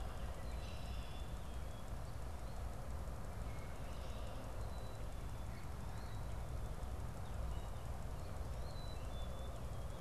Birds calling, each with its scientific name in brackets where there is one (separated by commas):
Black-capped Chickadee (Poecile atricapillus), Eastern Phoebe (Sayornis phoebe), Red-winged Blackbird (Agelaius phoeniceus)